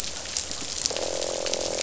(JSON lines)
{"label": "biophony, croak", "recorder": "SoundTrap 500"}